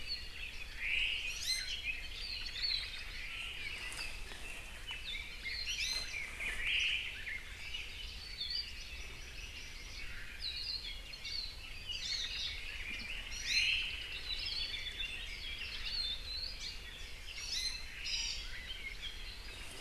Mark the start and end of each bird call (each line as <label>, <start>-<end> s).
Omao (Myadestes obscurus), 0.6-1.5 s
Iiwi (Drepanis coccinea), 1.2-1.8 s
Hawaii Akepa (Loxops coccineus), 2.1-2.9 s
Omao (Myadestes obscurus), 2.3-3.9 s
Red-billed Leiothrix (Leiothrix lutea), 4.8-7.5 s
Iiwi (Drepanis coccinea), 5.6-6.4 s
Omao (Myadestes obscurus), 6.5-7.4 s
Hawaii Akepa (Loxops coccineus), 8.1-8.8 s
Hawaii Amakihi (Chlorodrepanis virens), 8.7-10.0 s
Omao (Myadestes obscurus), 9.9-10.5 s
Hawaii Akepa (Loxops coccineus), 10.3-11.6 s
Iiwi (Drepanis coccinea), 11.8-12.4 s
Omao (Myadestes obscurus), 12.1-12.7 s
Iiwi (Drepanis coccinea), 13.3-13.8 s
Omao (Myadestes obscurus), 13.4-14.1 s
Hawaii Akepa (Loxops coccineus), 14.2-14.8 s
Hawaii Akepa (Loxops coccineus), 15.8-16.6 s
Hawaii Creeper (Loxops mana), 16.5-16.8 s
Iiwi (Drepanis coccinea), 17.3-18.0 s
Omao (Myadestes obscurus), 17.8-18.5 s
Apapane (Himatione sanguinea), 18.0-18.4 s